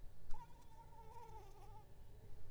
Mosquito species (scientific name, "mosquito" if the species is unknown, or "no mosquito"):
Anopheles arabiensis